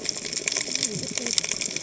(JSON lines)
{"label": "biophony, cascading saw", "recorder": "HydroMoth"}